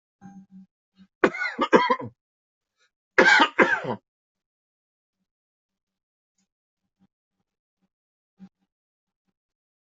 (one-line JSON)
{"expert_labels": [{"quality": "ok", "cough_type": "dry", "dyspnea": false, "wheezing": false, "stridor": false, "choking": false, "congestion": false, "nothing": true, "diagnosis": "COVID-19", "severity": "mild"}], "age": 43, "gender": "male", "respiratory_condition": false, "fever_muscle_pain": false, "status": "COVID-19"}